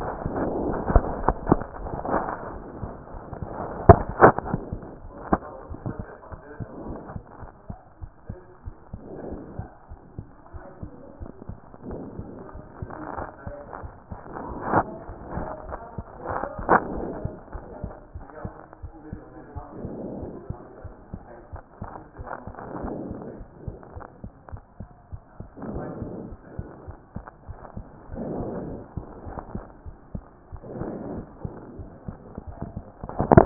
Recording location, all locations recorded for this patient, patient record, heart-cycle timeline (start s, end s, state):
aortic valve (AV)
aortic valve (AV)+pulmonary valve (PV)+mitral valve (MV)
#Age: Child
#Sex: Female
#Height: 101.0 cm
#Weight: 14.7 kg
#Pregnancy status: False
#Murmur: Absent
#Murmur locations: nan
#Most audible location: nan
#Systolic murmur timing: nan
#Systolic murmur shape: nan
#Systolic murmur grading: nan
#Systolic murmur pitch: nan
#Systolic murmur quality: nan
#Diastolic murmur timing: nan
#Diastolic murmur shape: nan
#Diastolic murmur grading: nan
#Diastolic murmur pitch: nan
#Diastolic murmur quality: nan
#Outcome: Normal
#Campaign: 2014 screening campaign
0.00	6.17	unannotated
6.17	6.34	diastole
6.34	6.40	S1
6.40	6.58	systole
6.58	6.66	S2
6.66	6.86	diastole
6.86	6.98	S1
6.98	7.12	systole
7.12	7.22	S2
7.22	7.42	diastole
7.42	7.50	S1
7.50	7.68	systole
7.68	7.78	S2
7.78	8.00	diastole
8.00	8.10	S1
8.10	8.28	systole
8.28	8.38	S2
8.38	8.68	diastole
8.68	8.74	S1
8.74	8.92	systole
8.92	9.00	S2
9.00	9.28	diastole
9.28	9.40	S1
9.40	9.58	systole
9.58	9.68	S2
9.68	9.92	diastole
9.92	10.00	S1
10.00	10.18	systole
10.18	10.26	S2
10.26	10.54	diastole
10.54	10.62	S1
10.62	10.82	systole
10.82	10.90	S2
10.90	11.20	diastole
11.20	11.30	S1
11.30	11.48	systole
11.48	11.56	S2
11.56	11.88	diastole
11.88	12.00	S1
12.00	12.18	systole
12.18	12.26	S2
12.26	12.56	diastole
12.56	12.66	S1
12.66	33.46	unannotated